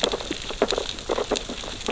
{"label": "biophony, sea urchins (Echinidae)", "recorder": "SoundTrap 600 or HydroMoth"}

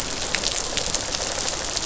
{"label": "biophony, rattle response", "recorder": "SoundTrap 500"}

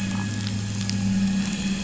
{"label": "anthrophony, boat engine", "recorder": "SoundTrap 500"}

